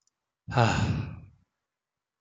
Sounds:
Sigh